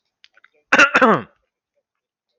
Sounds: Throat clearing